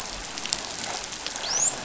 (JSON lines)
{"label": "biophony, dolphin", "recorder": "SoundTrap 500"}